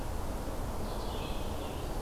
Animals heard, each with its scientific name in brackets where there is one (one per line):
Red-eyed Vireo (Vireo olivaceus)